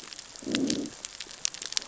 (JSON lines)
{"label": "biophony, growl", "recorder": "SoundTrap 600 or HydroMoth"}